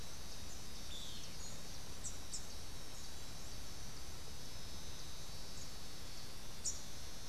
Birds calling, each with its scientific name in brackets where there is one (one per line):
Rufous-capped Warbler (Basileuterus rufifrons)